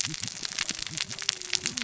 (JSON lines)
{"label": "biophony, cascading saw", "recorder": "SoundTrap 600 or HydroMoth"}